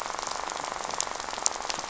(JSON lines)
{"label": "biophony, rattle", "recorder": "SoundTrap 500"}